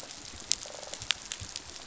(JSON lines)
{"label": "biophony", "recorder": "SoundTrap 500"}